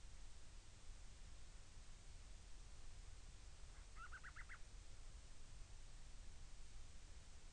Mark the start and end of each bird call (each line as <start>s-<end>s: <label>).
3.6s-4.6s: Band-rumped Storm-Petrel (Hydrobates castro)